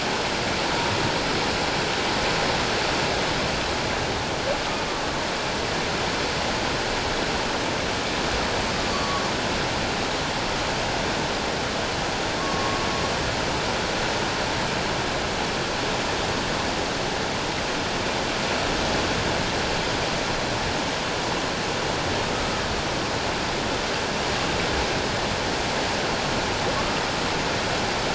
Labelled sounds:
8.9	9.2	humpback whale, 1.0 to 4.6 kHz
12.4	12.8	humpback whale, 0.97 to 1.2 kHz
26.8	27.0	humpback whale, 1.0 to 1.3 kHz

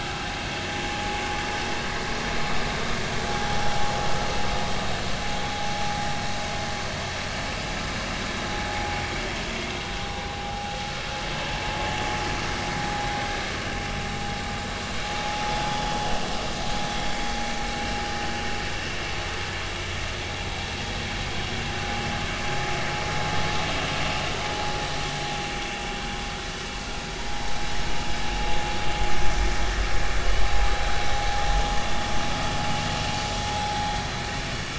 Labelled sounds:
0.0	0.2	vessel noise, 1.2 to 1.5 kHz
10.4	10.8	vessel noise, 0.80 to 0.90 kHz
15.2	15.6	vessel noise, 0.83 to 0.96 kHz
27.3	27.5	vessel noise, 0.86 to 1.0 kHz

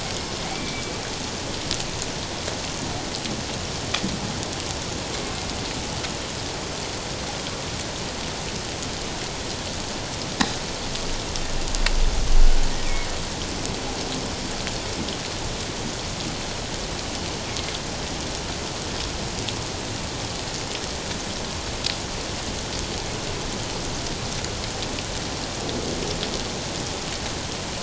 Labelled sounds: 0.2	0.9	killer whale, northern resident, G clan, 2.2 to 5.3 kHz

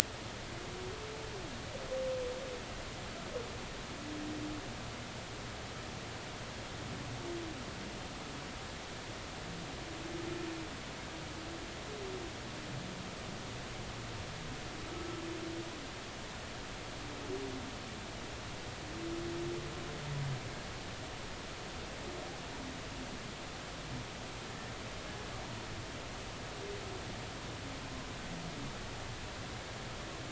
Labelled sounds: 14.9	15.2	humpback whale, 1.2 to 1.4 kHz

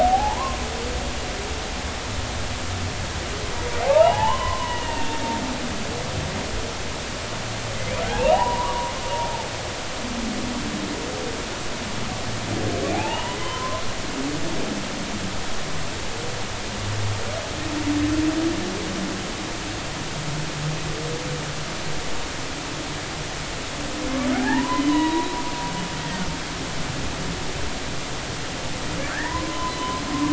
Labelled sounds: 0.0	0.6	humpback whale, 0.80 to 1.2 kHz
3.8	5.2	humpback whale, 0.80 to 3.1 kHz
7.7	8.9	humpback whale, 0.80 to 2.9 kHz
12.9	13.8	humpback whale, 0.80 to 3.1 kHz
24.3	25.3	humpback whale, 0.80 to 3.1 kHz
29.1	30.0	humpback whale, 0.90 to 2.0 kHz

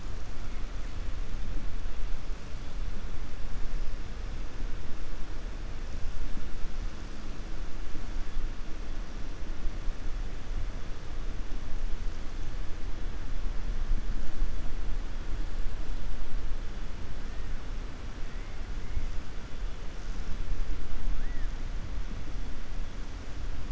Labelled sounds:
21.1	21.5	killer whale, 1.3 to 2.0 kHz

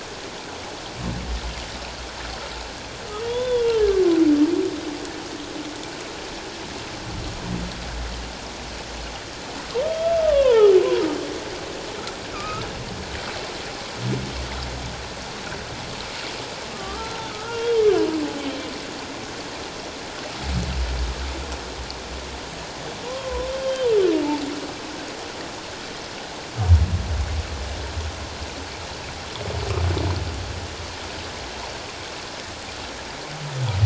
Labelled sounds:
3.2	3.8	humpback whale, 0.91 to 3.6 kHz
9.9	10.7	humpback whale, 0.81 to 3.7 kHz
12.3	12.7	humpback whale, 1.1 to 1.4 kHz
16.7	17.7	humpback whale, 1.1 to 1.5 kHz
23.0	23.9	humpback whale, 0.91 to 3.2 kHz

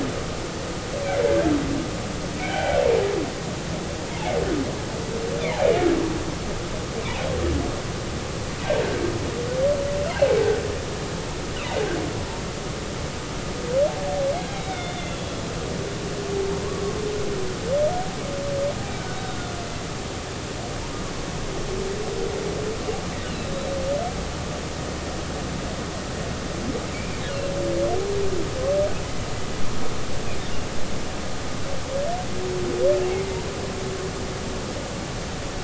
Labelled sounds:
2.4	2.8	humpback whale, 0.80 to 2.4 kHz
14.3	15.4	humpback whale, 2.1 to 4.0 kHz
26.9	27.5	humpback whale, 2.2 to 2.9 kHz

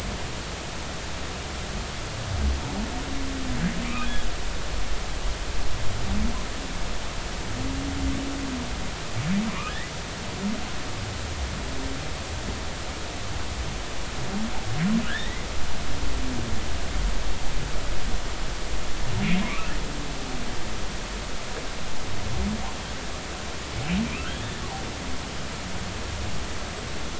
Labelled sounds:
3.8	4.1	humpback whale, 2.2 to 2.7 kHz
9.5	9.9	humpback whale, 0.90 to 2.0 kHz
15.0	15.5	humpback whale, 1.3 to 2.1 kHz
19.4	19.7	humpback whale, 2.1 to 2.8 kHz
24.0	24.3	humpback whale, 2.3 to 2.7 kHz

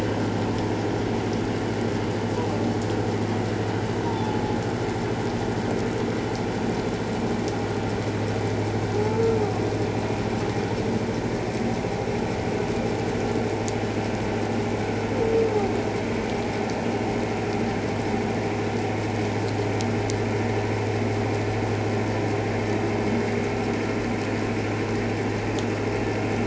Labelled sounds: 4.0	4.4	humpback whale, 0.81 to 1.0 kHz
8.9	9.4	humpback whale, 0.81 to 1.4 kHz

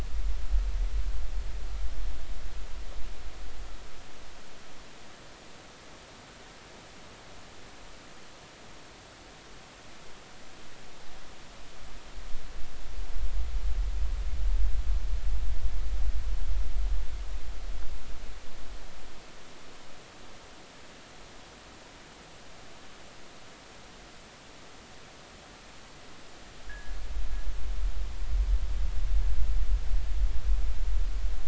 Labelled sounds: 26.7	27.0	fishing gear, 1.6 to 1.8 kHz

